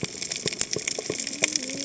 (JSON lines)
{"label": "biophony, cascading saw", "recorder": "HydroMoth"}